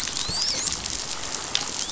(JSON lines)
{"label": "biophony, dolphin", "recorder": "SoundTrap 500"}